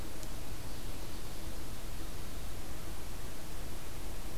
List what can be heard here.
Ovenbird, American Crow